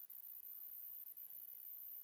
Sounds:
Sigh